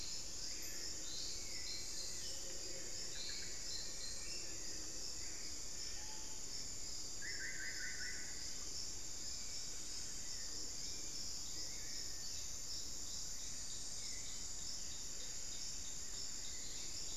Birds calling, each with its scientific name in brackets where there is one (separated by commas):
Solitary Black Cacique (Cacicus solitarius), Screaming Piha (Lipaugus vociferans), White-rumped Sirystes (Sirystes albocinereus), Black-faced Antthrush (Formicarius analis), Cinereous Tinamou (Crypturellus cinereus), Hauxwell's Thrush (Turdus hauxwelli)